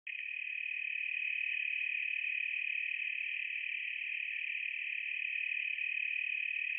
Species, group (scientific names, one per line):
Oecanthus latipennis
Orthoptera